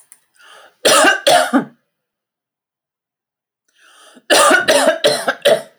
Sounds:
Cough